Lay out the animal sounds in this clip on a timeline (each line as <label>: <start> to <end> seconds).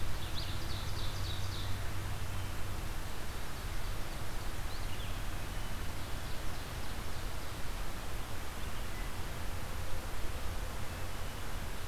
Ovenbird (Seiurus aurocapilla): 0.0 to 1.9 seconds
Ovenbird (Seiurus aurocapilla): 3.0 to 4.2 seconds
Ovenbird (Seiurus aurocapilla): 5.9 to 7.6 seconds